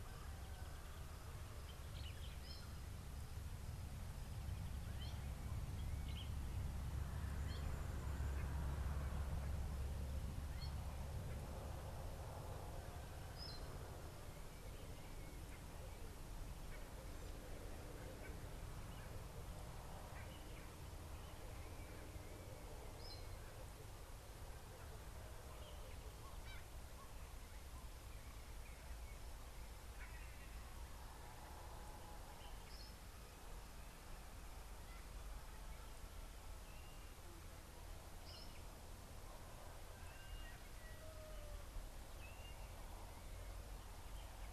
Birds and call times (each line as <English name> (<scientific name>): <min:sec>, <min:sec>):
Meyer's Parrot (Poicephalus meyeri): 0:13.5, 0:38.4
Southern Fiscal (Lanius collaris): 0:22.4
Blue-naped Mousebird (Urocolius macrourus): 0:40.4
Sulphur-breasted Bushshrike (Telophorus sulfureopectus): 0:40.9